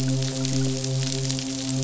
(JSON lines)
{"label": "biophony, midshipman", "recorder": "SoundTrap 500"}